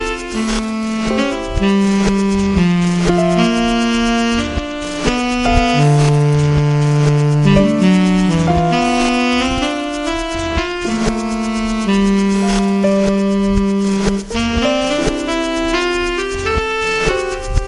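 Saxophone and piano playing relaxed, positive jazz music. 0.0 - 17.7

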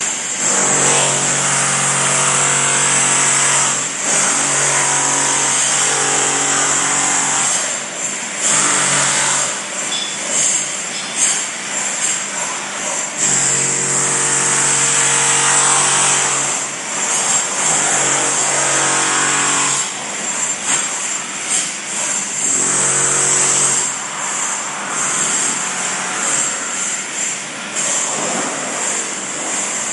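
A drill emits low, muffled bursts of sound with a heavy tone and audible resistance, repeating irregularly. 0.0 - 29.9

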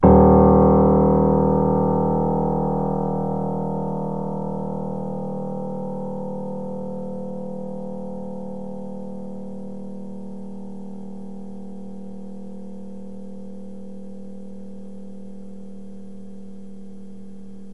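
A piano plays a single note. 0.0 - 17.7

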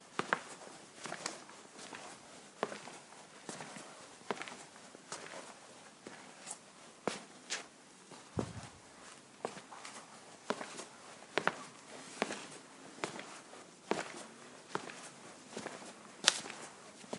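Someone walking at a steady, normal pace. 0.0 - 17.2

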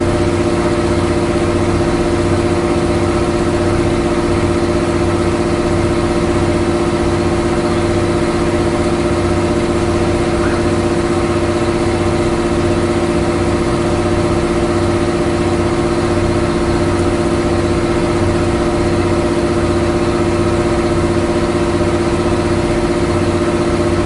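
A ferry engine roars with a consistent, deep growl. 0.0 - 24.1

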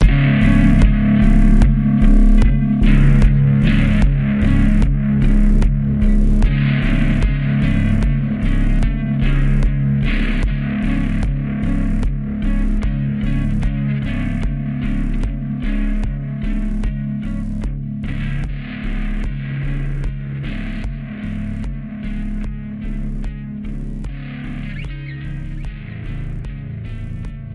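An electric guitar plays with drums hitting every 0.2 seconds. 0.0 - 27.5

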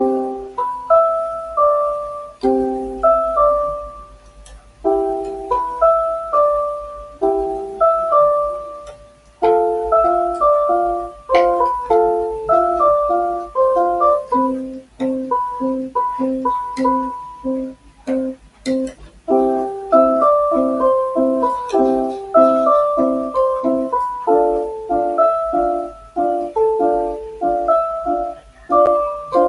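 Chords and a melody are played on an electric instrument indoors. 0.0 - 29.5
A faint clicking sound is heard indoors. 8.6 - 10.8
A melody is played by an electronic instrument nearby. 8.6 - 10.8

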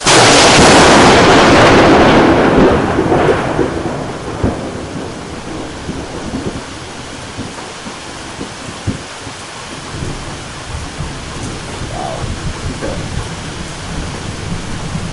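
Loud rumbling in nature. 0.0 - 4.6
Continuous rain is heard in the background. 0.0 - 15.1
Two people are speaking at a moderate volume. 11.8 - 13.0

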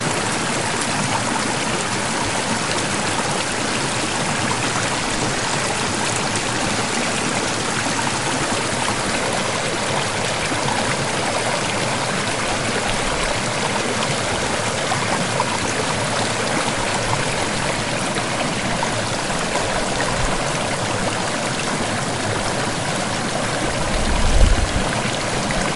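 A river flowing loudly in a creek. 0.1 - 25.8

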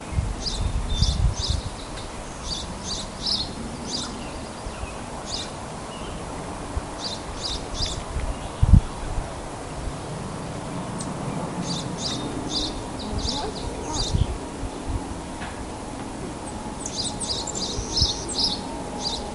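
Different kinds of birds sing with occasional pauses. 0.0 - 4.4
Birds sing intermittently while the wind wails during the pauses. 5.0 - 16.3

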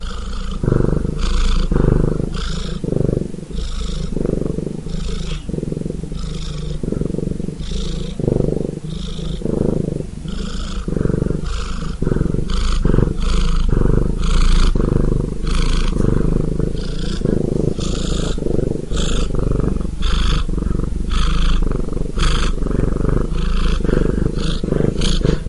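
A cat purring rhythmically and rapidly. 0.0 - 25.5

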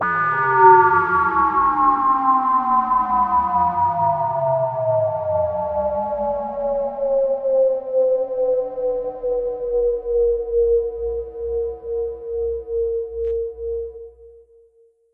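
An FX sound plays continuously with bass and reverb, gradually fading in a pulsing and echoing manner. 0.0 - 14.7

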